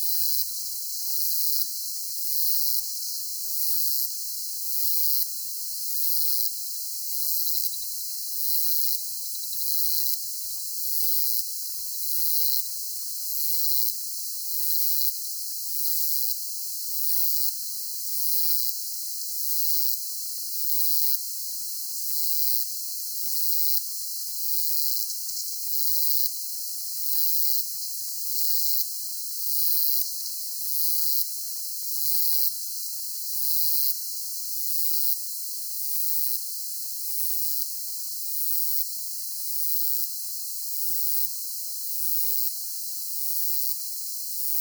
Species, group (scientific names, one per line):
Uromenus elegans
Orthoptera